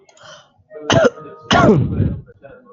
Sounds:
Cough